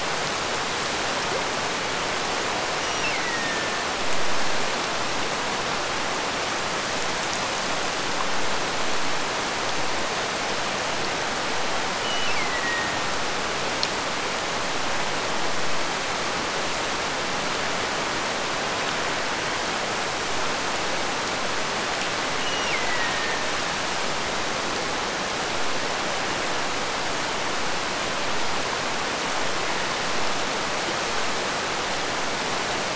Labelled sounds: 2.8	4.0	killer whale, Bigg's (transient), Gulf of Alaska transient, 1.6 to 3.0 kHz
12.0	13.2	killer whale, Bigg's (transient), Gulf of Alaska transient, 1.7 to 3.0 kHz
22.4	23.7	killer whale, Bigg's (transient), Gulf of Alaska transient, 1.7 to 3.0 kHz

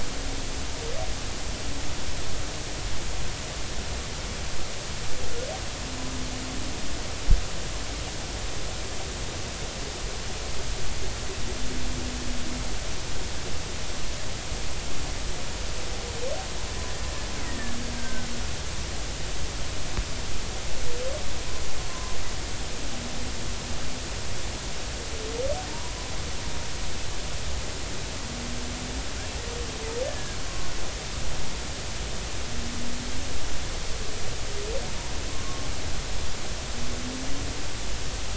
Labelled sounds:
17.4	18.3	killer whale, Bigg's (transient), 1.5 to 2.0 kHz
21.9	22.2	humpback whale, 0.96 to 1.2 kHz
25.7	26.0	humpback whale, 0.90 to 1.0 kHz
30.1	30.4	killer whale, Bigg's (transient), 1.5 to 1.8 kHz

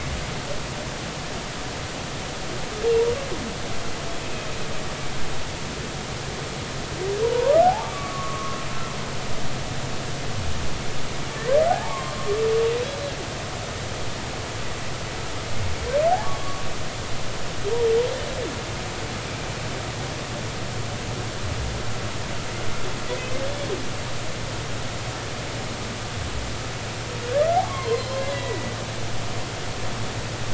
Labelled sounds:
7.2	8.6	humpback whale, 0.80 to 1.3 kHz
11.3	13.1	humpback whale, 0.80 to 4.0 kHz
16.2	16.6	humpback whale, 1.1 to 1.2 kHz
27.6	28.7	humpback whale, 0.93 to 4.3 kHz

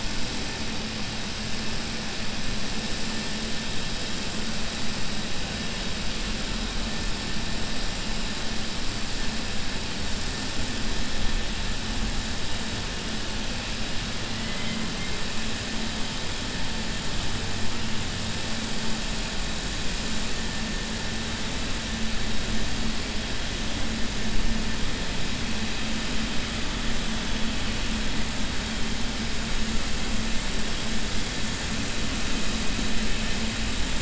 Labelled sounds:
14.3	14.8	killer whale, southern resident, 1.9 to 3.2 kHz

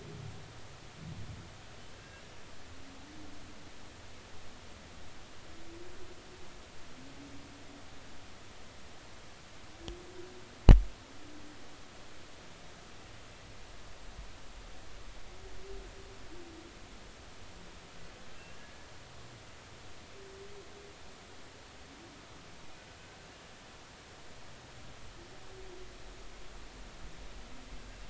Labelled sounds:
1.9	2.2	humpback whale, 1.5 to 1.7 kHz

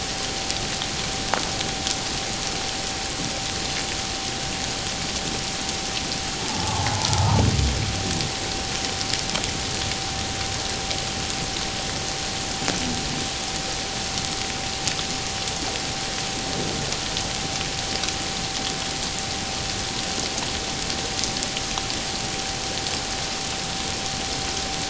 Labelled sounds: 6.4	7.4	humpback whale, 0.78 to 1.4 kHz

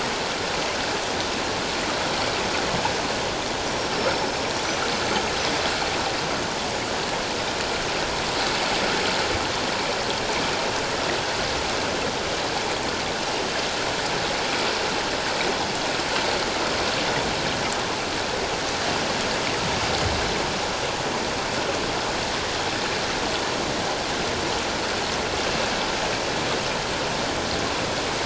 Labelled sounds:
4.0	4.9	killer whale, 5.2 to 6.2 kHz

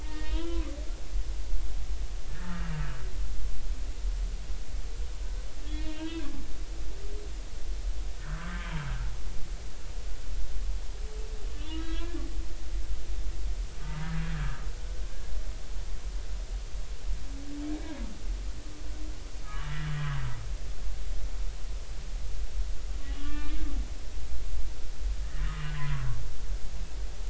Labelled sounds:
0.0	0.8	humpback whale, 0.96 to 3.4 kHz
2.3	2.8	humpback whale, 1.2 to 1.9 kHz
5.6	6.4	humpback whale, 1.5 to 4.2 kHz
8.5	9.6	humpback whale, 1.1 to 3.2 kHz
11.7	12.2	humpback whale, 1.6 to 4.1 kHz
13.8	14.1	humpback whale, 0.86 to 0.99 kHz
19.4	19.9	humpback whale, 1.1 to 1.9 kHz
23.2	23.6	humpback whale, 1.7 to 3.8 kHz
24.2	25.7	humpback whale, 0.99 to 1.3 kHz

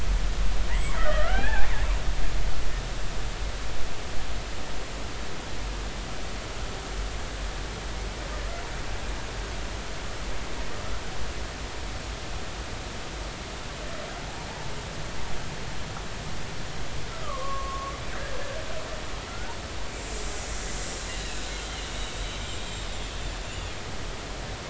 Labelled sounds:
0.7	1.7	killer whale, Bigg's (transient), 0.80 to 2.3 kHz
17.2	18.3	killer whale, Bigg's (transient), 0.99 to 1.8 kHz
19.3	19.5	killer whale, Bigg's (transient), 1.3 to 1.5 kHz
21.2	22.4	killer whale, Bigg's (transient), 2.5 to 3.9 kHz

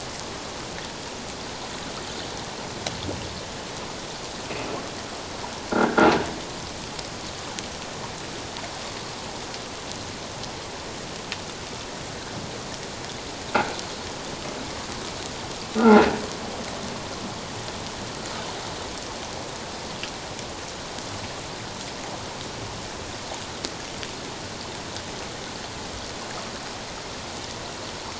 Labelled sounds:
5.8	6.1	croaking sound likely from a nearby submerged object, 1.3 to 1.7 kHz
15.8	16.1	croaking sound likely from a nearby submerged object, 1.3 to 1.5 kHz

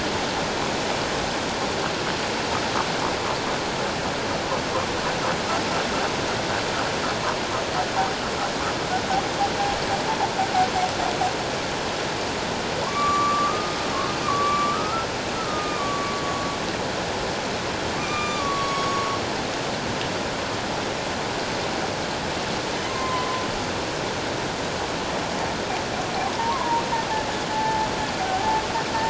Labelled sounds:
12.8	15.1	humpback whale, 0.88 to 7.0 kHz
15.4	16.1	humpback whale, 1.0 to 2.5 kHz
18.0	19.1	humpback whale, 1.1 to 6.7 kHz
22.8	23.4	humpback whale, 0.97 to 2.1 kHz
26.4	26.8	humpback whale, 0.88 to 1.2 kHz
27.5	28.6	humpback whale, 0.78 to 0.94 kHz

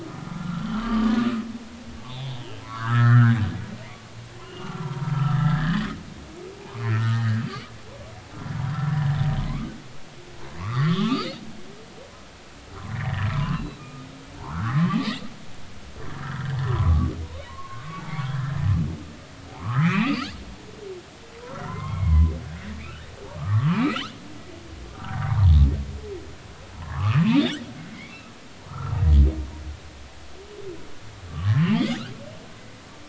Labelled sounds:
0.0	1.1	humpback whale, 1.1 to 3.3 kHz
2.0	3.4	humpback whale, 0.80 to 4.0 kHz
4.4	5.8	humpback whale, 0.90 to 2.9 kHz
6.2	7.4	humpback whale, 0.80 to 2.3 kHz
9.4	9.7	humpback whale, 0.96 to 1.3 kHz
10.6	11.3	humpback whale, 0.99 to 3.7 kHz
12.8	14.0	humpback whale, 0.96 to 4.0 kHz
14.4	14.8	humpback whale, 0.80 to 1.7 kHz
16.1	18.0	humpback whale, 0.90 to 4.0 kHz
18.3	18.7	humpback whale, 1.5 to 2.0 kHz
19.5	20.3	humpback whale, 0.80 to 4.9 kHz
21.5	22.3	humpback whale, 0.90 to 2.4 kHz
22.8	23.1	humpback whale, 1.2 to 3.1 kHz
23.4	24.1	humpback whale, 1.0 to 4.4 kHz
24.9	25.5	humpback whale, 0.80 to 1.7 kHz
26.8	28.2	humpback whale, 0.90 to 3.9 kHz
28.7	29.0	humpback whale, 1.0 to 1.4 kHz
31.3	32.0	humpback whale, 0.80 to 5.1 kHz

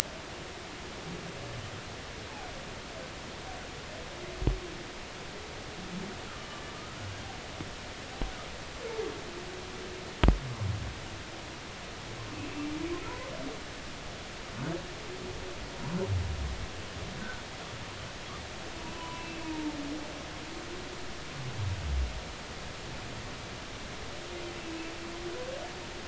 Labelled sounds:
18.8	19.7	humpback whale, 0.80 to 2.7 kHz
24.5	24.9	humpback whale, 2.5 to 2.8 kHz

